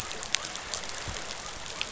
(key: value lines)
label: biophony
recorder: SoundTrap 500